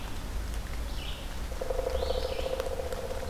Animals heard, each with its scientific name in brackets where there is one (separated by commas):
Pileated Woodpecker (Dryocopus pileatus), Red-eyed Vireo (Vireo olivaceus)